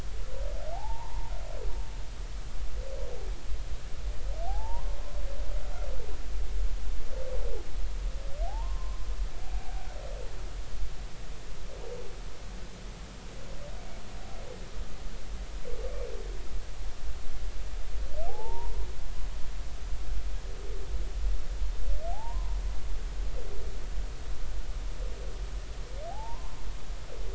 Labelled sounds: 0.7	1.3	humpback whale, 0.80 to 1.1 kHz
4.5	5.0	humpback whale, 0.80 to 1.1 kHz
8.5	9.9	humpback whale, 0.80 to 1.1 kHz
18.3	18.7	humpback whale, 0.80 to 1.1 kHz
22.1	22.5	humpback whale, 0.80 to 1.1 kHz
26.1	26.6	humpback whale, 0.80 to 1.2 kHz

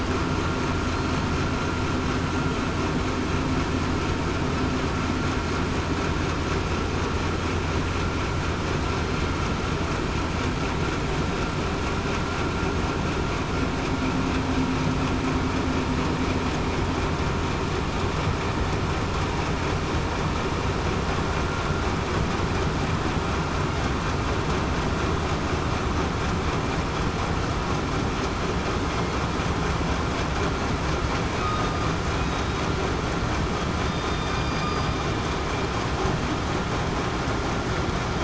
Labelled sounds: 32.2	32.6	killer whale, southern resident, 3.75 to 3.80 kHz
33.9	34.4	killer whale, southern resident, 3.6 to 3.7 kHz

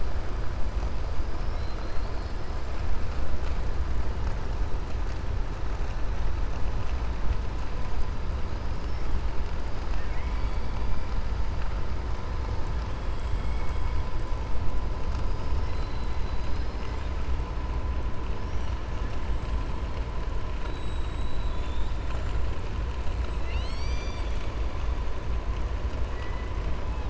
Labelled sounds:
8.6	9.1	killer whale, 4.7 to 5.9 kHz
9.8	10.6	killer whale, 1.6 to 3.2 kHz
26.1	26.5	killer whale, 1.1 to 3.0 kHz

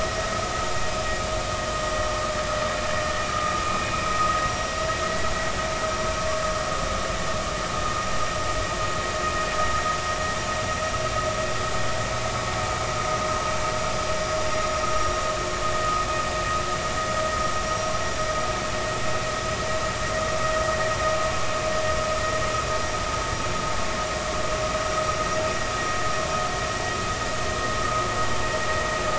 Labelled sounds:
3.8	4.1	vessel noise, 2.5 to 2.6 kHz
4.5	4.7	vessel noise, 5.6 to 5.7 kHz

